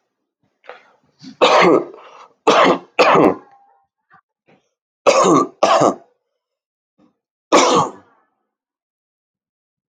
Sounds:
Cough